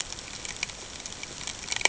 {"label": "ambient", "recorder": "HydroMoth"}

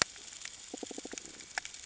{"label": "ambient", "recorder": "HydroMoth"}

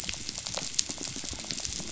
{"label": "biophony, rattle", "recorder": "SoundTrap 500"}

